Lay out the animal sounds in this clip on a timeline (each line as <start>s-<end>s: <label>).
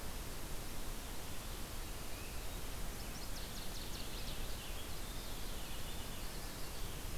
2.6s-4.9s: Northern Waterthrush (Parkesia noveboracensis)
3.3s-7.2s: Purple Finch (Haemorhous purpureus)